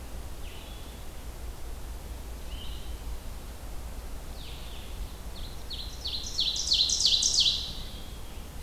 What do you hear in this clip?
Blue-headed Vireo, Ovenbird